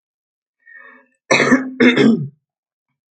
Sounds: Throat clearing